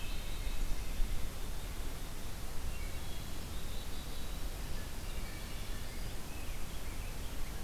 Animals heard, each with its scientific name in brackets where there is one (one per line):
Wood Thrush (Hylocichla mustelina)
Hermit Thrush (Catharus guttatus)
Rose-breasted Grosbeak (Pheucticus ludovicianus)
Black-capped Chickadee (Poecile atricapillus)